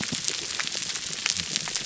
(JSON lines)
{"label": "biophony", "recorder": "SoundTrap 300"}